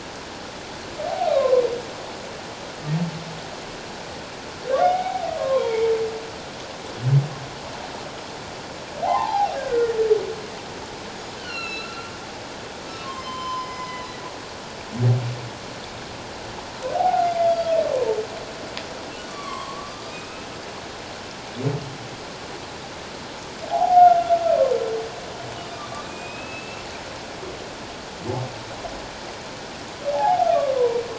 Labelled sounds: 1.3	1.6	humpback whale, 0.97 to 1.2 kHz
4.8	5.9	humpback whale, 0.78 to 3.4 kHz
9.0	10.0	humpback whale, 0.78 to 2.0 kHz
11.4	12.1	humpback whale, 1.3 to 4.4 kHz
13.0	14.1	humpback whale, 0.97 to 7.3 kHz
16.9	18.2	humpback whale, 0.78 to 3.4 kHz
19.3	20.5	humpback whale, 0.97 to 7.7 kHz
23.7	24.4	humpback whale, 0.78 to 1.5 kHz
25.7	26.8	humpback whale, 1.1 to 7.7 kHz
30.1	31.0	humpback whale, 0.78 to 1.1 kHz

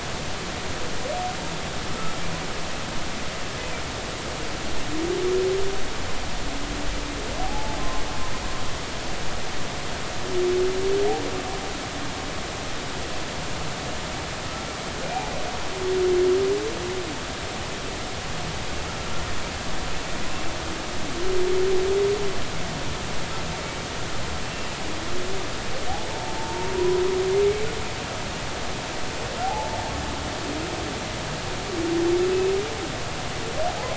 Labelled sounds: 7.4	7.8	humpback whale, 0.80 to 0.93 kHz
15.0	15.3	humpback whale, 2.37 to 2.43 kHz
24.4	24.7	humpback whale, 2.6 to 2.8 kHz
26.1	27.0	humpback whale, 0.83 to 1.0 kHz
29.4	29.8	humpback whale, 0.80 to 0.93 kHz

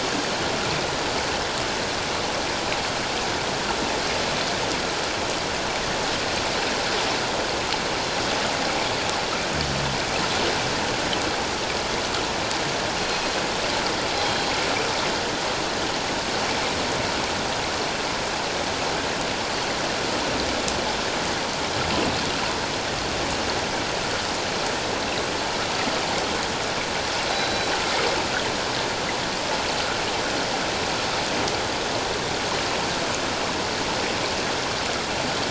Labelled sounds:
14.2	14.4	killer whale, northern resident, G clan, call N24ii, 3.2 to 3.3 kHz
27.3	27.7	killer whale, northern resident, G clan, 3.8 to 4.0 kHz

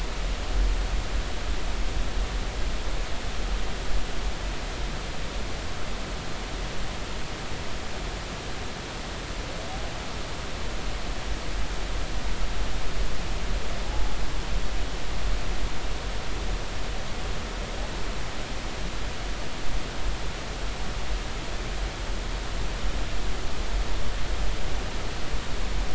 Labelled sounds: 13.9	14.2	humpback whale, 0.80 to 0.90 kHz

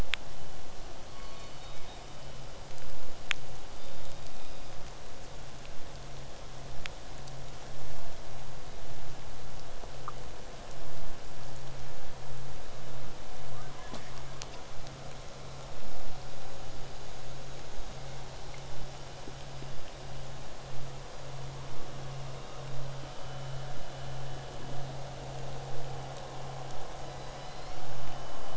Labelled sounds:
3.7	4.9	killer whale, southern resident, call S17, 2.3 to 8.0 kHz
13.5	14.7	killer whale, southern resident, 0.60 to 1.9 kHz
17.7	22.7	vessel noise, 0 to 8.0 kHz
27.0	27.9	killer whale, southern resident, 1.8 to 6.1 kHz

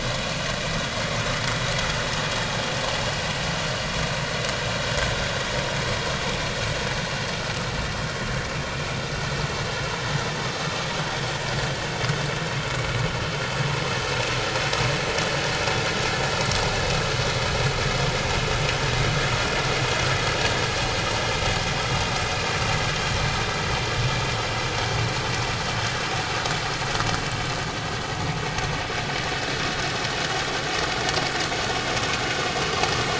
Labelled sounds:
10.6	10.9	vessel noise, 1.15 to 1.25 kHz

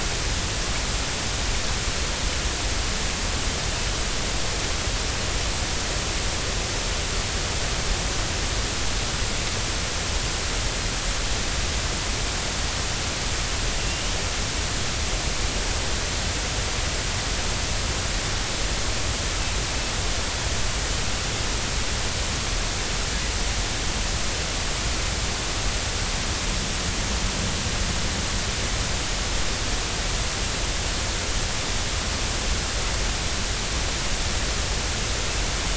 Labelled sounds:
13.8	14.1	killer whale, northern resident, 2.7 to 3.0 kHz

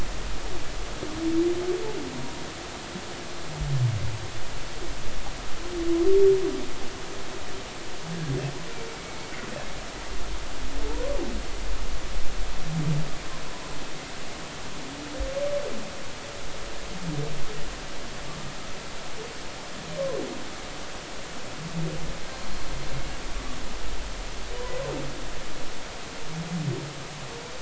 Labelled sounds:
2.1	2.4	humpback whale, 0.93 to 1.1 kHz
8.9	9.2	humpback whale, 2.1 to 2.3 kHz

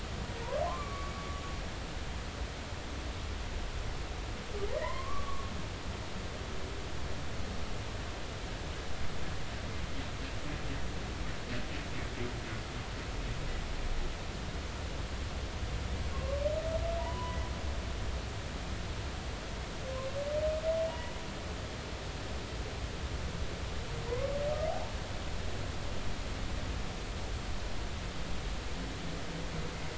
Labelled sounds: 0.7	1.4	humpback whale, 0.96 to 1.2 kHz
4.8	5.5	humpback whale, 0.90 to 2.2 kHz
16.1	16.4	humpback whale, 1.0 to 1.2 kHz
17.0	17.3	humpback whale, 2.9 to 3.0 kHz
18.0	18.4	humpback whale, 0.86 to 1.1 kHz
20.9	21.1	humpback whale, 0.90 to 3.0 kHz
24.1	24.4	humpback whale, 0.90 to 1.2 kHz

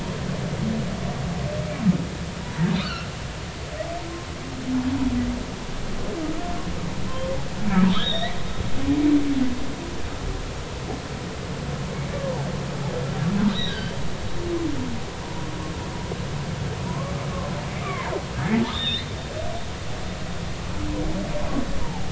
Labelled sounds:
2.4	3.1	humpback whale, 0.86 to 3.9 kHz
7.9	8.4	humpback whale, 1.8 to 4.1 kHz
13.5	14.0	humpback whale, 1.5 to 4.1 kHz
16.9	17.1	humpback whale, 0.90 to 1.2 kHz
17.8	18.1	humpback whale, 0.86 to 2.4 kHz
18.7	19.1	humpback whale, 1.8 to 4.3 kHz
21.8	22.0	humpback whale, 0.80 to 1.1 kHz

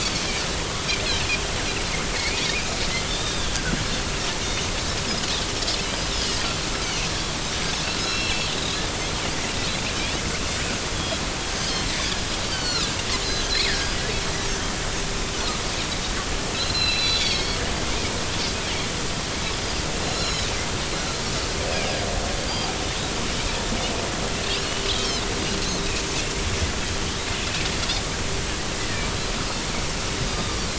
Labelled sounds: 2.1	3.5	Pacific white-sided dolphin, 1.9 to 3.7 kHz
8.0	8.5	Pacific white-sided dolphin, 2.6 to 5.5 kHz
10.9	11.9	Pacific white-sided dolphin, 3.0 to 3.5 kHz
12.5	14.0	Pacific white-sided dolphin, 1.2 to 5.1 kHz
16.5	17.6	Pacific white-sided dolphin, 2.1 to 5.7 kHz
20.0	20.5	Pacific white-sided dolphin, 3.6 to 6.9 kHz
24.9	25.2	Pacific white-sided dolphin, 3.0 to 3.5 kHz

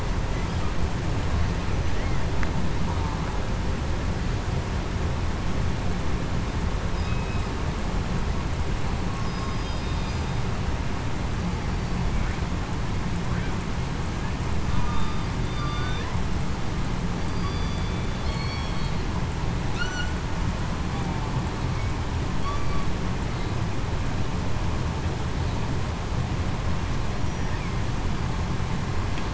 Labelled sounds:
7.0	7.4	killer whale, southern resident, 2.5 to 2.6 kHz
9.3	9.9	killer whale, southern resident, 4.9 to 5.0 kHz
14.8	15.1	killer whale, southern resident, 1.1 to 1.2 kHz
15.4	16.0	killer whale, southern resident, 1.1 to 3.6 kHz
17.3	17.8	killer whale, southern resident, 4.6 to 4.8 kHz
18.2	18.7	killer whale, southern resident, 2.2 to 4.4 kHz
19.7	20.1	killer whale, southern resident, 1.3 to 1.5 kHz

